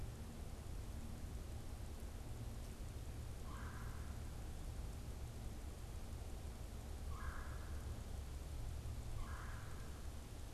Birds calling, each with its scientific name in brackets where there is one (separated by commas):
Red-bellied Woodpecker (Melanerpes carolinus)